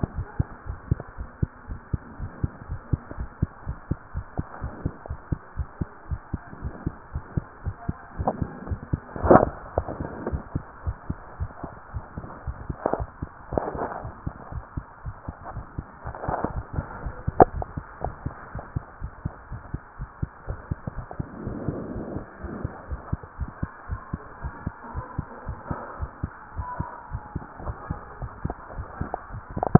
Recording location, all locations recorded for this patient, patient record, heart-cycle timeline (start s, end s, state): tricuspid valve (TV)
aortic valve (AV)+pulmonary valve (PV)+tricuspid valve (TV)+mitral valve (MV)
#Age: Child
#Sex: Male
#Height: 125.0 cm
#Weight: 28.3 kg
#Pregnancy status: False
#Murmur: Absent
#Murmur locations: nan
#Most audible location: nan
#Systolic murmur timing: nan
#Systolic murmur shape: nan
#Systolic murmur grading: nan
#Systolic murmur pitch: nan
#Systolic murmur quality: nan
#Diastolic murmur timing: nan
#Diastolic murmur shape: nan
#Diastolic murmur grading: nan
#Diastolic murmur pitch: nan
#Diastolic murmur quality: nan
#Outcome: Normal
#Campaign: 2015 screening campaign
0.00	0.14	unannotated
0.14	0.28	S1
0.28	0.38	systole
0.38	0.52	S2
0.52	0.68	diastole
0.68	0.80	S1
0.80	0.90	systole
0.90	1.02	S2
1.02	1.18	diastole
1.18	1.30	S1
1.30	1.38	systole
1.38	1.52	S2
1.52	1.70	diastole
1.70	1.78	S1
1.78	1.88	systole
1.88	2.02	S2
2.02	2.20	diastole
2.20	2.32	S1
2.32	2.36	systole
2.36	2.52	S2
2.52	2.68	diastole
2.68	2.80	S1
2.80	2.86	systole
2.86	3.00	S2
3.00	3.18	diastole
3.18	3.30	S1
3.30	3.38	systole
3.38	3.50	S2
3.50	3.66	diastole
3.66	3.78	S1
3.78	3.86	systole
3.86	3.98	S2
3.98	4.16	diastole
4.16	4.26	S1
4.26	4.34	systole
4.34	4.46	S2
4.46	4.62	diastole
4.62	4.74	S1
4.74	4.82	systole
4.82	4.92	S2
4.92	5.08	diastole
5.08	5.18	S1
5.18	5.28	systole
5.28	5.42	S2
5.42	5.58	diastole
5.58	5.68	S1
5.68	5.78	systole
5.78	5.88	S2
5.88	6.10	diastole
6.10	6.20	S1
6.20	6.30	systole
6.30	6.40	S2
6.40	6.60	diastole
6.60	6.74	S1
6.74	6.84	systole
6.84	6.94	S2
6.94	7.12	diastole
7.12	7.24	S1
7.24	7.32	systole
7.32	7.44	S2
7.44	7.62	diastole
7.62	7.76	S1
7.76	7.86	systole
7.86	7.98	S2
7.98	8.18	diastole
8.18	8.34	S1
8.34	8.38	systole
8.38	8.50	S2
8.50	8.68	diastole
8.68	8.82	S1
8.82	8.90	systole
8.90	9.04	S2
9.04	9.24	diastole
9.24	9.42	S1
9.42	9.46	systole
9.46	9.58	S2
9.58	9.76	diastole
9.76	9.90	S1
9.90	9.98	systole
9.98	10.10	S2
10.10	10.26	diastole
10.26	10.42	S1
10.42	10.54	systole
10.54	10.66	S2
10.66	10.84	diastole
10.84	10.96	S1
10.96	11.06	systole
11.06	11.18	S2
11.18	11.38	diastole
11.38	11.52	S1
11.52	11.64	systole
11.64	11.72	S2
11.72	11.94	diastole
11.94	12.04	S1
12.04	12.16	systole
12.16	12.28	S2
12.28	12.46	diastole
12.46	12.60	S1
12.60	12.68	systole
12.68	12.78	S2
12.78	12.98	diastole
12.98	13.08	S1
13.08	13.18	systole
13.18	13.32	S2
13.32	13.52	diastole
13.52	13.66	S1
13.66	13.76	systole
13.76	13.88	S2
13.88	14.04	diastole
14.04	14.16	S1
14.16	14.24	systole
14.24	14.34	S2
14.34	14.52	diastole
14.52	14.64	S1
14.64	14.76	systole
14.76	14.84	S2
14.84	15.06	diastole
15.06	15.16	S1
15.16	15.24	systole
15.24	15.34	S2
15.34	15.54	diastole
15.54	15.66	S1
15.66	15.74	systole
15.74	15.86	S2
15.86	16.06	diastole
16.06	29.79	unannotated